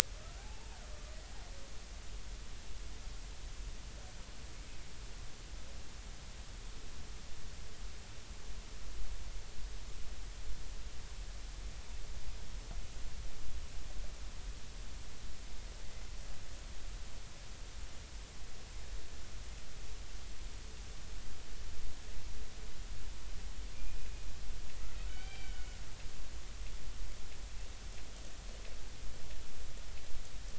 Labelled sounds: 0.4	0.8	killer whale, Bigg's (transient), 0.80 to 0.96 kHz
25.1	25.7	killer whale, Bigg's (transient), 1.4 to 4.8 kHz

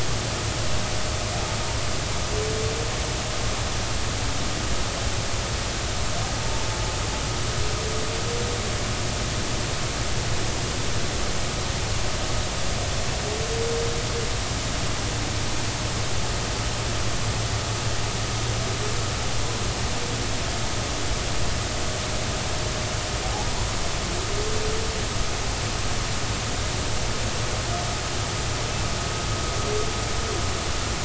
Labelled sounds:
23.2	23.6	humpback whale, 0.80 to 0.99 kHz

